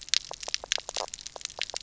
{"label": "biophony, knock croak", "recorder": "SoundTrap 300"}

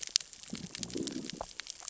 {"label": "biophony, growl", "recorder": "SoundTrap 600 or HydroMoth"}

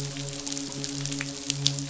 {"label": "biophony, midshipman", "recorder": "SoundTrap 500"}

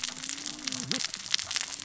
{"label": "biophony, cascading saw", "recorder": "SoundTrap 600 or HydroMoth"}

